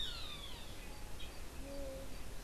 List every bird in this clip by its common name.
Roadside Hawk, unidentified bird